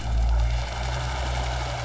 {"label": "anthrophony, boat engine", "recorder": "SoundTrap 500"}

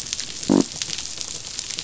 {"label": "biophony", "recorder": "SoundTrap 500"}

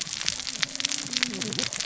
{"label": "biophony, cascading saw", "recorder": "SoundTrap 600 or HydroMoth"}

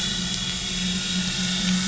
{"label": "anthrophony, boat engine", "recorder": "SoundTrap 500"}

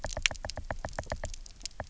{"label": "biophony, knock", "recorder": "SoundTrap 300"}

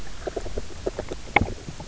{"label": "biophony, grazing", "recorder": "SoundTrap 300"}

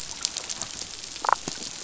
{"label": "biophony, damselfish", "recorder": "SoundTrap 500"}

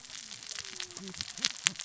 {"label": "biophony, cascading saw", "recorder": "SoundTrap 600 or HydroMoth"}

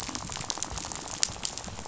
{"label": "biophony, rattle", "recorder": "SoundTrap 500"}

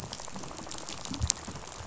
{"label": "biophony, rattle", "recorder": "SoundTrap 500"}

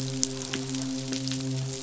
{"label": "biophony, midshipman", "recorder": "SoundTrap 500"}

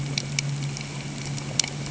{"label": "anthrophony, boat engine", "recorder": "HydroMoth"}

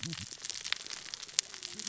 {"label": "biophony, cascading saw", "recorder": "SoundTrap 600 or HydroMoth"}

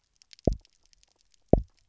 {"label": "biophony, double pulse", "recorder": "SoundTrap 300"}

